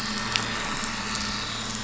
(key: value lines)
label: anthrophony, boat engine
recorder: SoundTrap 500